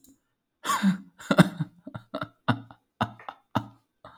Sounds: Laughter